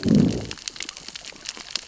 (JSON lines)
{"label": "biophony, growl", "recorder": "SoundTrap 600 or HydroMoth"}